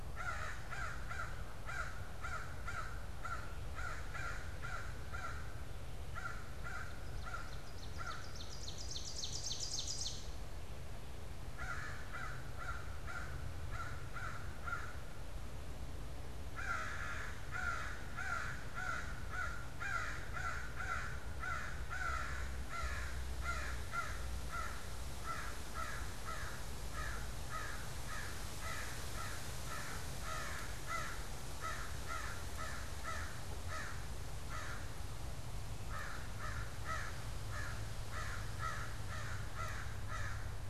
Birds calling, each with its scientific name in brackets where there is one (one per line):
American Crow (Corvus brachyrhynchos)
Ovenbird (Seiurus aurocapilla)